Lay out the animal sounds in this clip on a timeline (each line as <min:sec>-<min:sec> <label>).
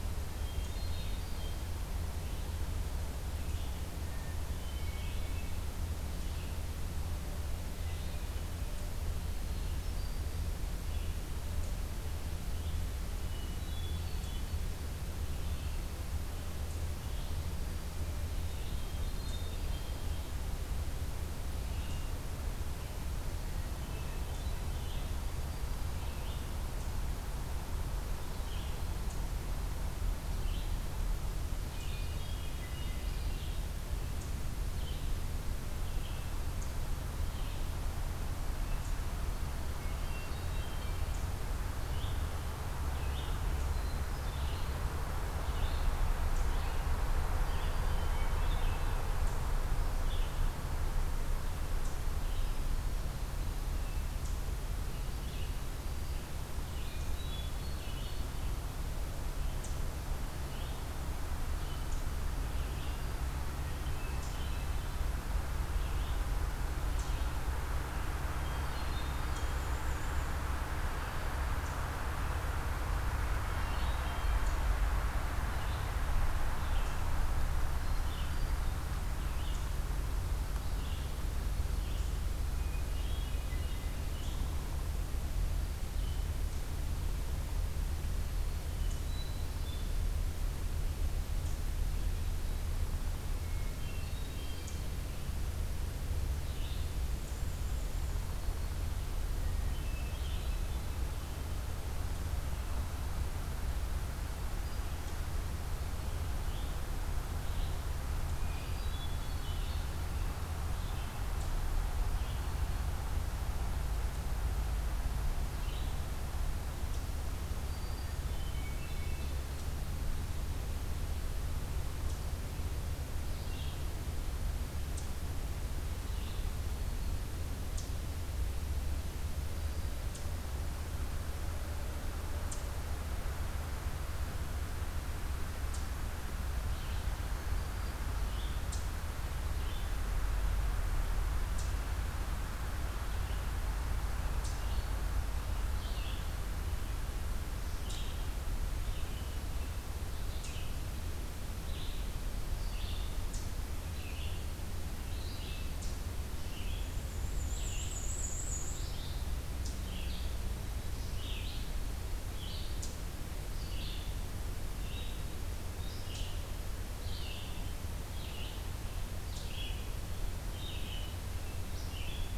0:00.0-0:18.9 Red-eyed Vireo (Vireo olivaceus)
0:00.3-0:01.7 Hermit Thrush (Catharus guttatus)
0:04.1-0:05.5 Hermit Thrush (Catharus guttatus)
0:09.4-0:10.5 Hermit Thrush (Catharus guttatus)
0:13.2-0:14.5 Hermit Thrush (Catharus guttatus)
0:18.6-0:20.2 Hermit Thrush (Catharus guttatus)
0:19.9-0:36.2 Red-eyed Vireo (Vireo olivaceus)
0:23.4-0:24.8 Hermit Thrush (Catharus guttatus)
0:31.7-0:33.5 Hermit Thrush (Catharus guttatus)
0:39.9-0:41.1 Hermit Thrush (Catharus guttatus)
0:41.7-1:18.5 Red-eyed Vireo (Vireo olivaceus)
0:43.7-0:44.6 Hermit Thrush (Catharus guttatus)
0:47.4-0:49.0 Hermit Thrush (Catharus guttatus)
0:56.7-0:58.3 Hermit Thrush (Catharus guttatus)
1:04.0-1:05.1 Hermit Thrush (Catharus guttatus)
1:08.4-1:09.7 Hermit Thrush (Catharus guttatus)
1:09.3-1:10.3 Black-and-white Warbler (Mniotilta varia)
1:13.4-1:14.5 Hermit Thrush (Catharus guttatus)
1:17.8-1:18.6 Hermit Thrush (Catharus guttatus)
1:19.2-1:26.4 Red-eyed Vireo (Vireo olivaceus)
1:22.5-1:23.9 Hermit Thrush (Catharus guttatus)
1:28.7-1:30.0 Hermit Thrush (Catharus guttatus)
1:33.4-1:34.9 Hermit Thrush (Catharus guttatus)
1:34.6-1:34.8 Eastern Chipmunk (Tamias striatus)
1:36.4-1:37.0 Red-eyed Vireo (Vireo olivaceus)
1:37.2-1:38.3 Black-and-white Warbler (Mniotilta varia)
1:38.1-1:38.9 Black-throated Green Warbler (Setophaga virens)
1:39.4-1:41.0 Hermit Thrush (Catharus guttatus)
1:40.1-1:40.6 Red-eyed Vireo (Vireo olivaceus)
1:46.3-1:52.5 Red-eyed Vireo (Vireo olivaceus)
1:48.5-1:49.9 Hermit Thrush (Catharus guttatus)
1:55.5-1:56.0 Red-eyed Vireo (Vireo olivaceus)
1:56.9-2:15.9 Eastern Chipmunk (Tamias striatus)
1:57.5-1:58.5 Black-throated Green Warbler (Setophaga virens)
1:58.1-1:59.4 Hermit Thrush (Catharus guttatus)
2:03.2-2:03.8 Red-eyed Vireo (Vireo olivaceus)
2:05.9-2:06.5 Red-eyed Vireo (Vireo olivaceus)
2:16.6-2:17.2 Red-eyed Vireo (Vireo olivaceus)
2:18.1-2:20.0 Red-eyed Vireo (Vireo olivaceus)
2:18.6-2:52.4 Eastern Chipmunk (Tamias striatus)
2:24.5-2:52.4 Red-eyed Vireo (Vireo olivaceus)
2:36.7-2:38.9 Black-and-white Warbler (Mniotilta varia)